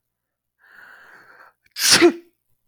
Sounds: Sneeze